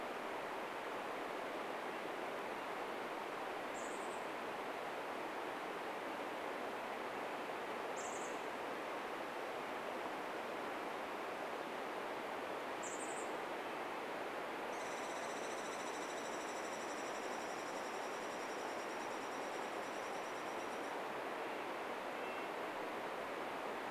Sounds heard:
Douglas squirrel rattle, Red-breasted Nuthatch song, Chestnut-backed Chickadee call

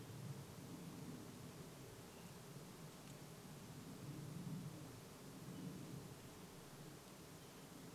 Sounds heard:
airplane

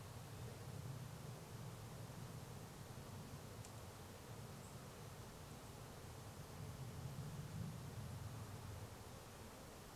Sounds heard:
insect buzz, airplane

